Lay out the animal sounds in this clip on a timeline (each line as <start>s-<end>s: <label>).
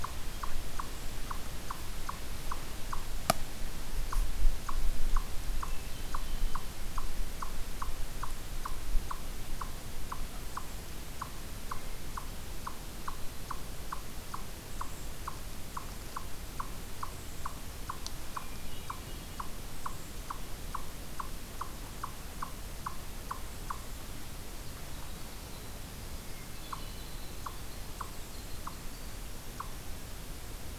0.0s-30.8s: Eastern Chipmunk (Tamias striatus)
5.6s-6.9s: Hermit Thrush (Catharus guttatus)
18.2s-19.7s: Hermit Thrush (Catharus guttatus)
25.5s-29.9s: Winter Wren (Troglodytes hiemalis)